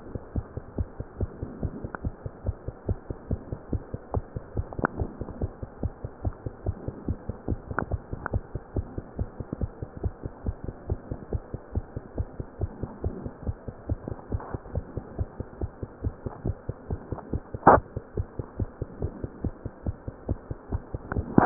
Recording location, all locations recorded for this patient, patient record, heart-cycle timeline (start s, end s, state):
mitral valve (MV)
aortic valve (AV)+pulmonary valve (PV)+tricuspid valve (TV)+mitral valve (MV)
#Age: Child
#Sex: Female
#Height: 123.0 cm
#Weight: 20.4 kg
#Pregnancy status: False
#Murmur: Absent
#Murmur locations: nan
#Most audible location: nan
#Systolic murmur timing: nan
#Systolic murmur shape: nan
#Systolic murmur grading: nan
#Systolic murmur pitch: nan
#Systolic murmur quality: nan
#Diastolic murmur timing: nan
#Diastolic murmur shape: nan
#Diastolic murmur grading: nan
#Diastolic murmur pitch: nan
#Diastolic murmur quality: nan
#Outcome: Abnormal
#Campaign: 2015 screening campaign
0.00	2.30	unannotated
2.30	2.46	diastole
2.46	2.56	S1
2.56	2.66	systole
2.66	2.74	S2
2.74	2.90	diastole
2.90	2.98	S1
2.98	3.10	systole
3.10	3.16	S2
3.16	3.30	diastole
3.30	3.40	S1
3.40	3.52	systole
3.52	3.60	S2
3.60	3.72	diastole
3.72	3.82	S1
3.82	3.94	systole
3.94	4.00	S2
4.00	4.14	diastole
4.14	4.24	S1
4.24	4.36	systole
4.36	4.42	S2
4.42	4.56	diastole
4.56	4.66	S1
4.66	4.78	systole
4.78	4.88	S2
4.88	4.98	diastole
4.98	5.10	S1
5.10	5.19	systole
5.19	5.26	S2
5.26	5.42	diastole
5.42	5.52	S1
5.52	5.60	systole
5.60	5.66	S2
5.66	5.82	diastole
5.82	5.92	S1
5.92	6.03	systole
6.03	6.10	S2
6.10	6.24	diastole
6.24	6.34	S1
6.34	6.44	systole
6.44	6.52	S2
6.52	6.66	diastole
6.66	6.74	S1
6.74	6.86	systole
6.86	6.94	S2
6.94	7.08	diastole
7.08	7.17	S1
7.17	7.28	systole
7.28	7.36	S2
7.36	7.49	diastole
7.49	7.58	S1
7.58	7.70	systole
7.70	7.77	S2
7.77	7.91	diastole
7.91	8.00	S1
8.00	8.11	systole
8.11	8.18	S2
8.18	8.34	diastole
8.34	8.44	S1
8.44	8.54	systole
8.54	8.62	S2
8.62	8.76	diastole
8.76	8.86	S1
8.86	8.96	systole
8.96	9.04	S2
9.04	9.18	diastole
9.18	9.27	S1
9.27	9.39	systole
9.39	9.45	S2
9.45	9.60	diastole
9.60	9.67	S1
9.67	9.80	systole
9.80	9.87	S2
9.87	10.04	diastole
10.04	10.14	S1
10.14	10.24	systole
10.24	10.32	S2
10.32	10.45	diastole
10.45	10.54	S1
10.54	10.65	systole
10.65	10.74	S2
10.74	10.88	diastole
10.88	11.00	S1
11.00	11.10	systole
11.10	11.17	S2
11.17	11.32	diastole
11.32	11.44	S1
11.44	11.53	systole
11.53	11.59	S2
11.59	11.74	diastole
11.74	11.81	S1
11.81	11.93	systole
11.93	12.01	S2
12.01	12.18	diastole
12.18	12.28	S1
12.28	12.37	systole
12.37	12.46	S2
12.46	12.60	diastole
12.60	12.72	S1
12.72	12.82	systole
12.82	12.90	S2
12.90	13.04	diastole
13.04	13.16	S1
13.16	13.24	systole
13.24	13.32	S2
13.32	13.46	diastole
13.46	13.56	S1
13.56	13.67	systole
13.67	13.73	S2
13.73	13.88	diastole
13.88	14.00	S1
14.00	14.10	systole
14.10	14.16	S2
14.16	14.32	diastole
14.32	14.42	S1
14.42	14.52	systole
14.52	14.60	S2
14.60	14.76	diastole
14.76	14.84	S1
14.84	14.95	systole
14.95	15.04	S2
15.04	15.18	diastole
15.18	15.28	S1
15.28	15.38	systole
15.38	15.46	S2
15.46	15.62	diastole
15.62	15.70	S1
15.70	15.82	systole
15.82	15.87	S2
15.87	16.04	diastole
16.04	16.14	S1
16.14	16.25	systole
16.25	16.31	S2
16.31	16.44	diastole
16.44	21.46	unannotated